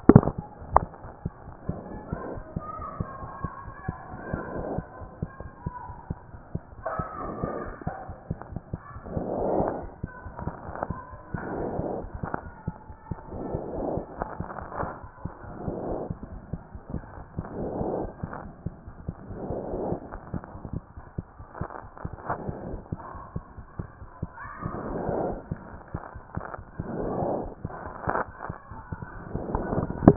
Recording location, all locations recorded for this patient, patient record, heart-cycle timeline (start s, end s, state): aortic valve (AV)
aortic valve (AV)+pulmonary valve (PV)+tricuspid valve (TV)+mitral valve (MV)
#Age: Child
#Sex: Male
#Height: 109.0 cm
#Weight: 22.9 kg
#Pregnancy status: False
#Murmur: Absent
#Murmur locations: nan
#Most audible location: nan
#Systolic murmur timing: nan
#Systolic murmur shape: nan
#Systolic murmur grading: nan
#Systolic murmur pitch: nan
#Systolic murmur quality: nan
#Diastolic murmur timing: nan
#Diastolic murmur shape: nan
#Diastolic murmur grading: nan
#Diastolic murmur pitch: nan
#Diastolic murmur quality: nan
#Outcome: Abnormal
#Campaign: 2014 screening campaign
0.00	1.16	unannotated
1.16	1.26	diastole
1.26	1.34	S1
1.34	1.44	systole
1.44	1.54	S2
1.54	1.68	diastole
1.68	1.78	S1
1.78	1.90	systole
1.90	2.00	S2
2.00	2.12	diastole
2.12	2.22	S1
2.22	2.32	systole
2.32	2.42	S2
2.42	2.56	diastole
2.56	2.64	S1
2.64	2.78	systole
2.78	2.86	S2
2.86	3.00	diastole
3.00	3.08	S1
3.08	3.22	systole
3.22	3.30	S2
3.30	3.44	diastole
3.44	3.52	S1
3.52	3.66	systole
3.66	3.74	S2
3.74	3.88	diastole
3.88	3.96	S1
3.96	4.10	systole
4.10	4.20	S2
4.20	4.33	diastole
4.33	30.16	unannotated